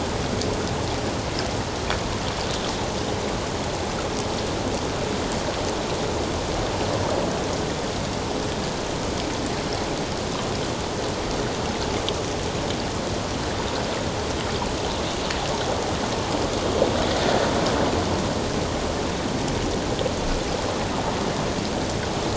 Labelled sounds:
17.2	17.5	water noise, 1.7 to 1.8 kHz

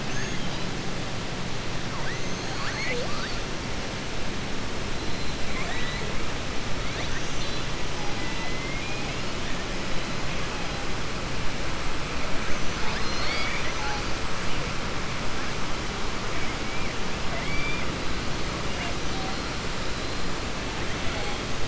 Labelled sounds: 0.0	0.7	killer whale, southern resident, 1.7 to 6.7 kHz
5.4	6.1	killer whale, southern resident, 0.70 to 4.2 kHz
8.1	9.1	killer whale, southern resident, 1.0 to 3.7 kHz
12.4	14.0	killer whale, southern resident, 0.71 to 6.4 kHz
17.2	17.9	killer whale, southern resident, 1.5 to 3.6 kHz

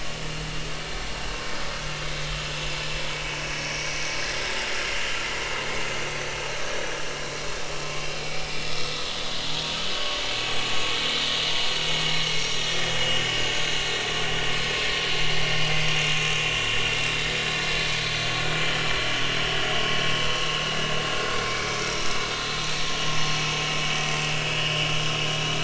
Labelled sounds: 8.2	9.3	vessel noise, 2.2 to 3.6 kHz
9.9	10.2	vessel noise, 1.1 to 1.2 kHz
12.4	12.7	vessel noise, 5.6 to 5.8 kHz
15.7	16.0	vessel noise, 6.2 to 6.5 kHz
18.0	18.3	vessel noise, 4.1 to 4.3 kHz
21.4	21.8	vessel noise, 2.1 to 2.3 kHz
24.6	24.9	vessel noise, 2.7 to 3.1 kHz
25.3	25.6	vessel noise, 3.8 to 4.0 kHz

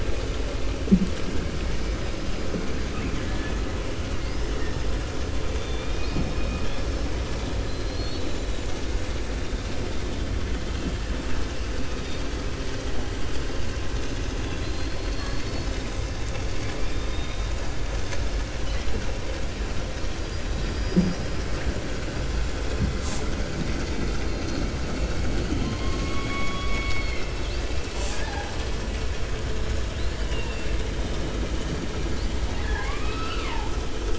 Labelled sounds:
2.8	3.6	killer whale, 0.76 to 2.8 kHz
5.5	7.0	killer whale, 2.3 to 5.8 kHz
7.6	8.6	killer whale, 2.9 to 4.9 kHz
14.4	15.8	killer whale, 2.7 to 6.4 kHz
16.5	17.5	killer whale, 0.84 to 4.0 kHz
20.5	21.4	killer whale, 3.0 to 5.8 kHz
30.2	30.7	killer whale, 1.8 to 3.7 kHz
32.4	33.7	killer whale, 0.81 to 5.4 kHz

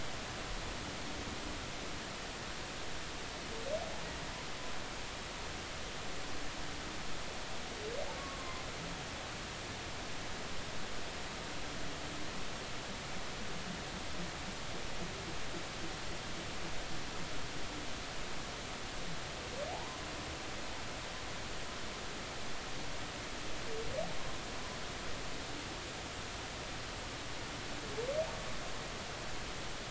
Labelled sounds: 19.7	20.0	humpback whale, 0.80 to 1.1 kHz

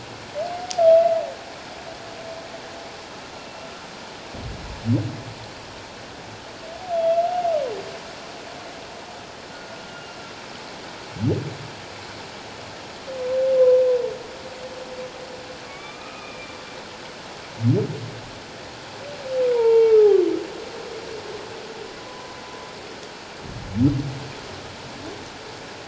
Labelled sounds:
9.9	10.2	humpback whale, 2.8 to 2.9 kHz
13.6	13.8	humpback whale, 0.91 to 1.1 kHz
15.7	16.6	humpback whale, 1.1 to 2.6 kHz
19.5	20.2	humpback whale, 0.84 to 2.8 kHz
22.1	22.4	humpback whale, 0.97 to 1.1 kHz

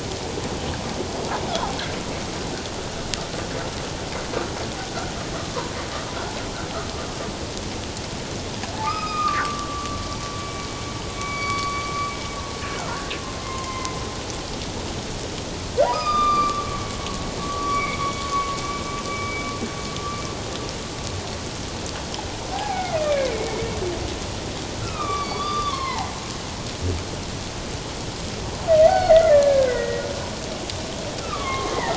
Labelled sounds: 8.8	10.7	humpback whale, 1.1 to 5.1 kHz
11.1	11.9	humpback whale, 1.1 to 4.6 kHz
12.8	13.9	humpback whale, 0.94 to 2.1 kHz
15.9	18.2	humpback whale, 1.0 to 5.1 kHz
19.1	19.4	humpback whale, 2.2 to 2.4 kHz
22.5	23.7	humpback whale, 0.78 to 2.6 kHz
24.8	26.1	humpback whale, 0.78 to 4.8 kHz
28.9	30.0	humpback whale, 1.3 to 4.6 kHz
31.2	31.9	humpback whale, 0.88 to 2.3 kHz

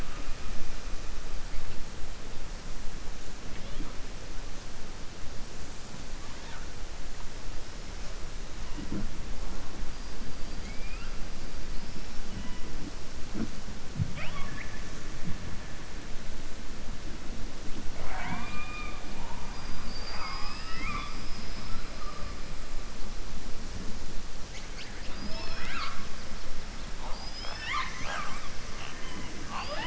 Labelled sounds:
10.5	11.1	killer whale, southern resident, 1.3 to 3.2 kHz
19.5	20.4	killer whale, southern resident, 4.5 to 5.5 kHz

